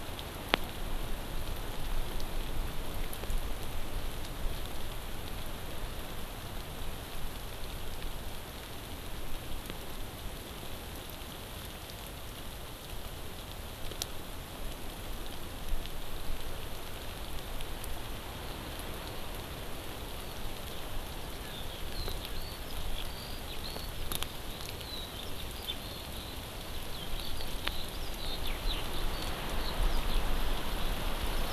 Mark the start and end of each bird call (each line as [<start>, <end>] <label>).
[21.36, 30.27] Eurasian Skylark (Alauda arvensis)